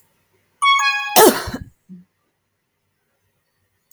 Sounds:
Cough